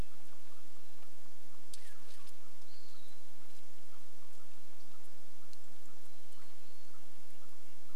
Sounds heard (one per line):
Red-breasted Nuthatch song
Western Wood-Pewee song
chipmunk chirp
Hermit Thrush song